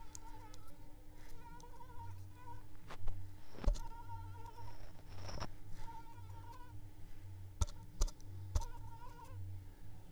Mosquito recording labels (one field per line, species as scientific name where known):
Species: Anopheles arabiensis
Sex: female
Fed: unfed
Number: one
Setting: cup